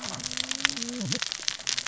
{"label": "biophony, cascading saw", "recorder": "SoundTrap 600 or HydroMoth"}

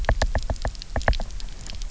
{"label": "biophony, knock", "recorder": "SoundTrap 300"}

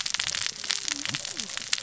{"label": "biophony, cascading saw", "recorder": "SoundTrap 600 or HydroMoth"}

